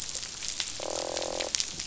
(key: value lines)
label: biophony, croak
recorder: SoundTrap 500